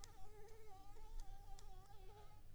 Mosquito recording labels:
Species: Anopheles arabiensis; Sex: female; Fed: unfed; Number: one; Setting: cup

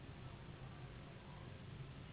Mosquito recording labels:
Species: Anopheles gambiae s.s.; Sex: female; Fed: unfed; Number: one; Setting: insect culture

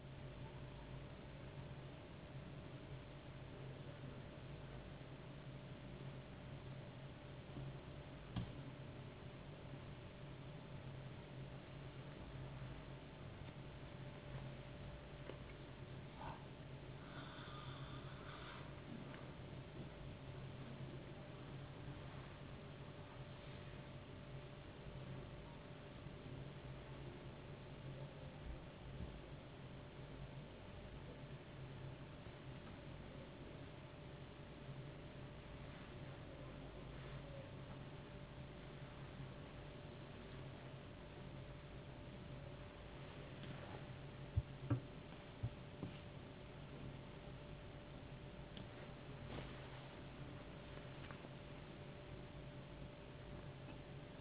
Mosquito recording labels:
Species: no mosquito; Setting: insect culture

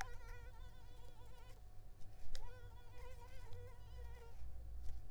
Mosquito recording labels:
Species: Culex tigripes; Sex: female; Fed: unfed; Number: one; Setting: cup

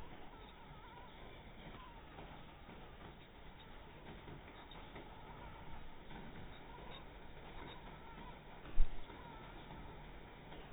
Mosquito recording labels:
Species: mosquito; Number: one; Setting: cup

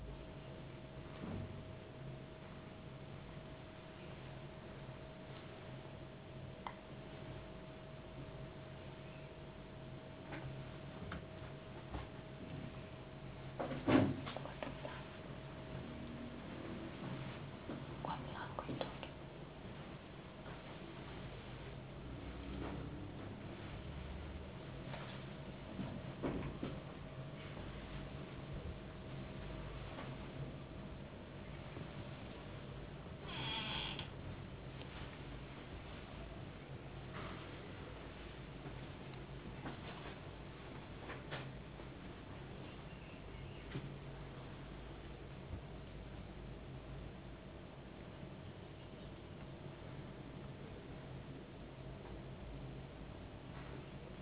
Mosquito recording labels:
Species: no mosquito; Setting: insect culture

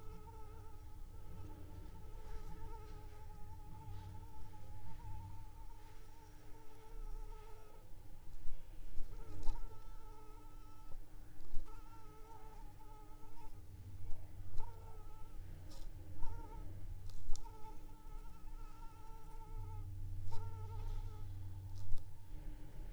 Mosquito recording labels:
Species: Anopheles arabiensis; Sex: female; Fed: unfed; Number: one; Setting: cup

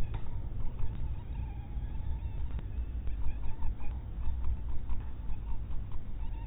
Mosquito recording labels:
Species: mosquito; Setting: cup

